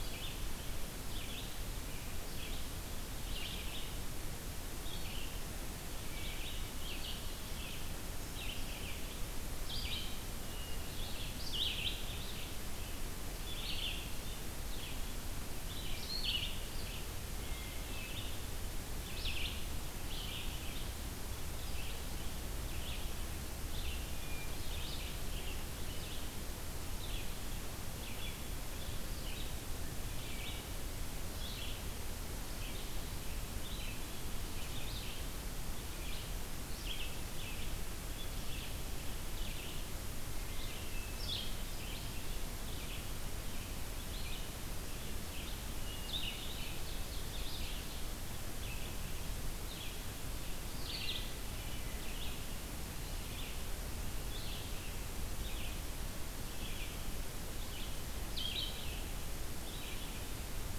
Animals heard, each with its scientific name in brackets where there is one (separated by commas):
Hermit Thrush (Catharus guttatus), Ovenbird (Seiurus aurocapilla), Red-eyed Vireo (Vireo olivaceus)